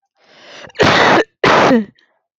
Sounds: Cough